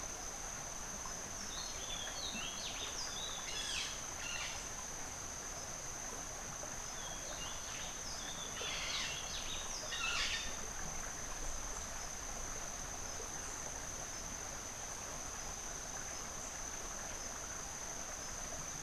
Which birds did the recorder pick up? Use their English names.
Rufous-breasted Wren, White-fronted Parrot